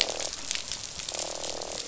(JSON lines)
{"label": "biophony, croak", "recorder": "SoundTrap 500"}